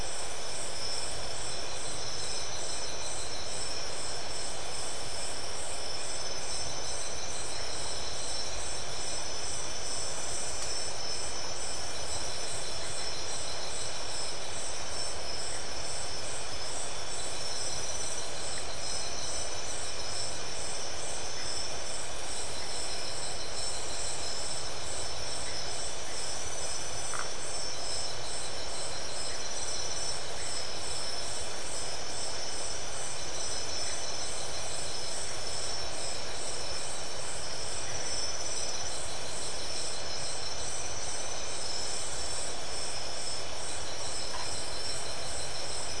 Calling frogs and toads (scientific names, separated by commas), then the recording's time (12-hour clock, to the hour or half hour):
Phyllomedusa distincta
11:30pm